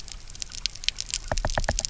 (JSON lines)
{"label": "biophony, knock", "recorder": "SoundTrap 300"}